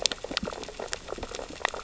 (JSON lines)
{"label": "biophony, sea urchins (Echinidae)", "recorder": "SoundTrap 600 or HydroMoth"}